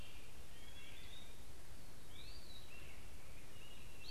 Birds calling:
Gray Catbird (Dumetella carolinensis), Veery (Catharus fuscescens), Eastern Wood-Pewee (Contopus virens)

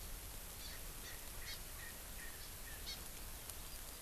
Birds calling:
Hawaii Amakihi (Chlorodrepanis virens), Erckel's Francolin (Pternistis erckelii)

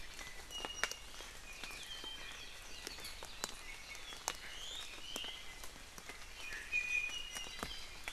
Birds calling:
Iiwi (Drepanis coccinea)

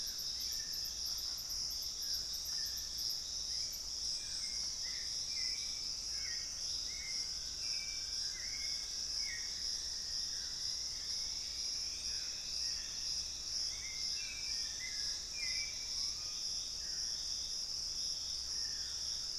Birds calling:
Hauxwell's Thrush (Turdus hauxwelli), unidentified bird, White-bellied Tody-Tyrant (Hemitriccus griseipectus), Piratic Flycatcher (Legatus leucophaius), Cinnamon-rumped Foliage-gleaner (Philydor pyrrhodes), Thrush-like Wren (Campylorhynchus turdinus), Dusky-throated Antshrike (Thamnomanes ardesiacus), Screaming Piha (Lipaugus vociferans)

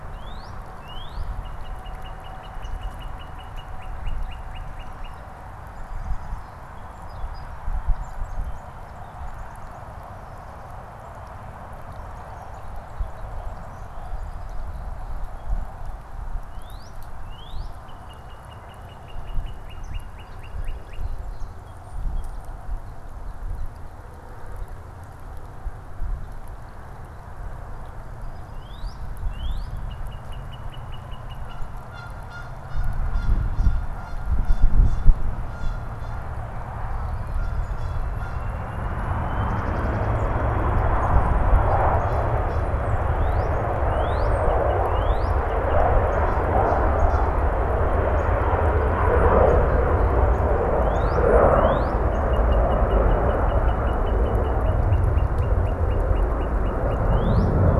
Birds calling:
Northern Cardinal (Cardinalis cardinalis), Tufted Titmouse (Baeolophus bicolor), Canada Goose (Branta canadensis), Song Sparrow (Melospiza melodia)

